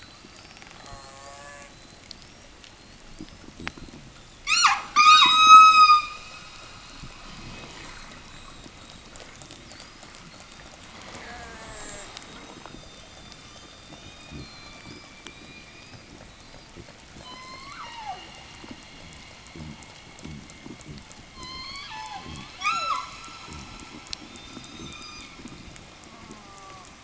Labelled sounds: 0.7	1.9	killer whale, southern resident, call S04, 0 to 8.0 kHz
4.4	6.2	killer whale, southern resident, 0 to 8.0 kHz
11.0	12.4	killer whale, southern resident, call S04, 0 to 8.0 kHz
11.5	16.4	killer whale, southern resident, 1.7 to 8.0 kHz
17.0	18.6	killer whale, southern resident, 0 to 6.6 kHz
21.2	23.2	killer whale, southern resident, 0 to 8.0 kHz
24.3	25.5	killer whale, southern resident, 0 to 6.8 kHz
25.9	27.0	killer whale, southern resident, call S04, 0 to 2.0 kHz

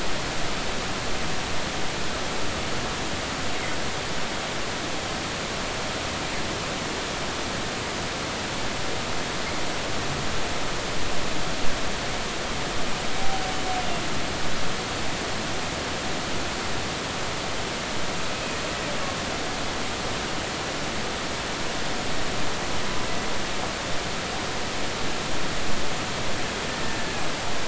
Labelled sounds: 18.3	18.6	humpback whale, 2.5 to 2.6 kHz

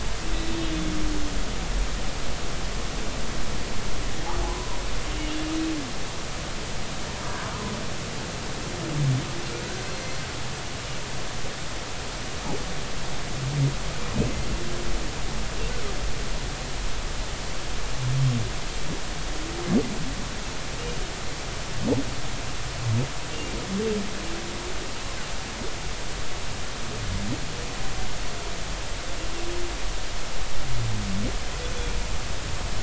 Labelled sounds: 0.5	0.9	humpback whale, 3.4 to 3.7 kHz
9.9	10.2	humpback whale, 4.1 to 4.3 kHz

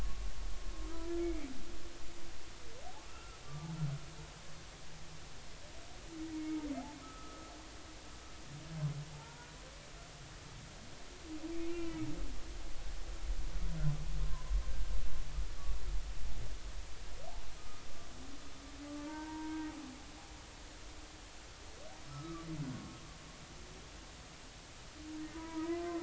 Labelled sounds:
1.2	1.5	humpback whale, 2.1 to 2.4 kHz
3.1	3.7	humpback whale, 1.1 to 1.4 kHz
6.3	6.6	humpback whale, 2.1 to 2.3 kHz
7.0	7.5	humpback whale, 1.2 to 1.3 kHz
9.2	9.5	humpback whale, 0.83 to 1.0 kHz
11.7	12.1	humpback whale, 1.3 to 2.8 kHz
17.6	17.8	humpback whale, 1.2 to 1.3 kHz
19.1	19.7	humpback whale, 0.86 to 1.6 kHz
22.1	22.5	humpback whale, 1.1 to 1.4 kHz
25.3	25.9	humpback whale, 0.93 to 1.3 kHz

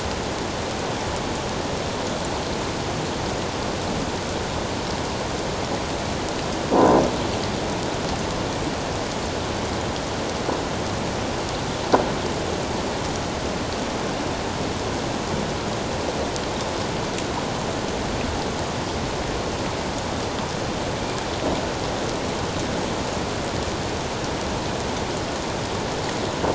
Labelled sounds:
6.8	7.0	croaking sound likely from a nearby submerged object, 0.88 to 1.1 kHz

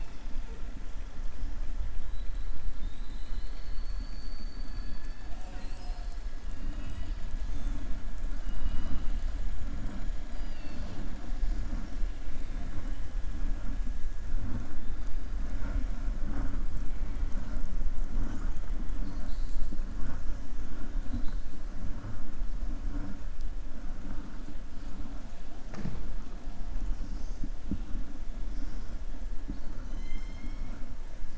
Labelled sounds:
6.5	7.2	killer whale, southern resident, 1.1 to 3.9 kHz
18.9	19.7	killer whale, southern resident, 3.4 to 5.0 kHz
29.8	30.8	killer whale, southern resident, 1.4 to 6.3 kHz

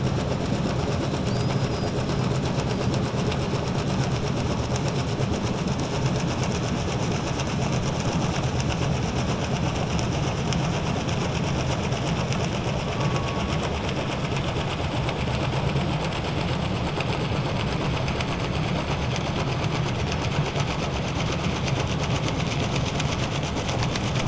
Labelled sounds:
1.2	1.9	killer whale, southern resident, 4.4 to 5.7 kHz

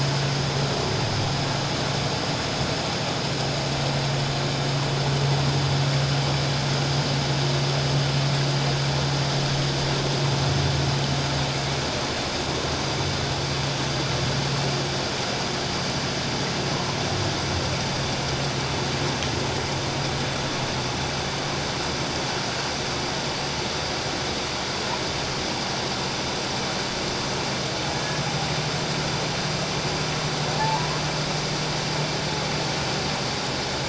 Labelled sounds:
27.9	28.2	humpback whale, 1.7 to 1.8 kHz
30.6	31.0	humpback whale, 0.81 to 1.1 kHz

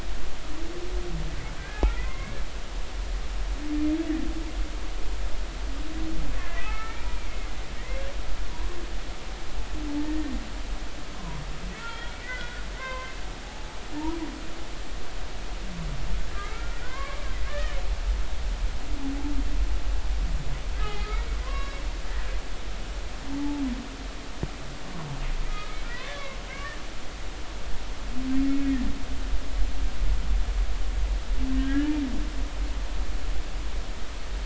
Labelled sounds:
1.6	2.3	humpback whale, 1.0 to 2.5 kHz
6.6	7.3	humpback whale, 1.2 to 2.5 kHz
7.5	8.0	humpback whale, 1.8 to 2.7 kHz
10.0	10.3	humpback whale, 1.8 to 1.9 kHz
11.2	13.1	humpback whale, 0.93 to 3.4 kHz
13.4	13.8	humpback whale, 0.80 to 0.93 kHz
16.4	17.8	humpback whale, 0.99 to 2.4 kHz
20.8	21.1	humpback whale, 2.0 to 3.8 kHz
21.4	21.8	humpback whale, 0.96 to 3.9 kHz
25.5	26.8	humpback whale, 1.2 to 3.7 kHz
31.6	32.0	humpback whale, 1.5 to 1.9 kHz

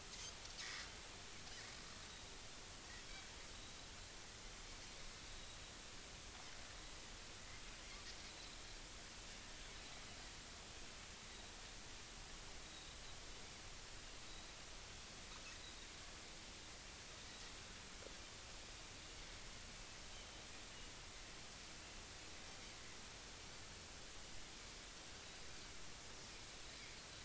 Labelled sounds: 0.1	0.4	Pacific white-sided dolphin, 6.2 to 6.5 kHz
12.6	13.0	Pacific white-sided dolphin, 3.7 to 4.0 kHz

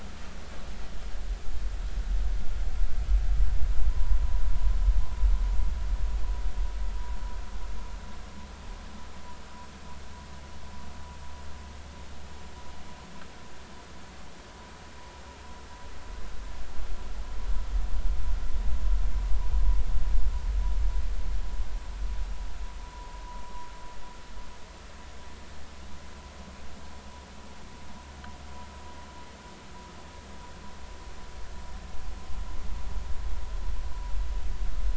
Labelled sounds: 3.9	4.4	vessel noise, 0.86 to 1.2 kHz
22.9	23.2	vessel noise, 0.93 to 1.1 kHz

